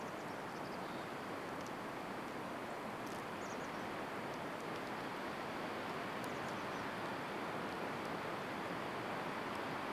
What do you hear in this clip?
Mountain Chickadee call, Chestnut-backed Chickadee call